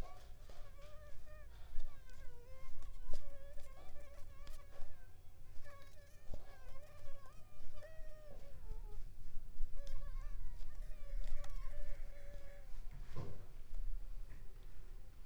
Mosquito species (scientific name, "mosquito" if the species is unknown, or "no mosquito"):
Mansonia uniformis